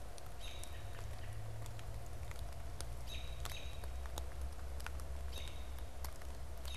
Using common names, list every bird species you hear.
American Robin